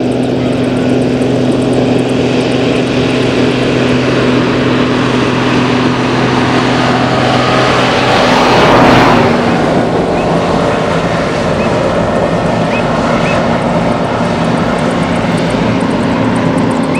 does the vehicle seem to be taking off?
yes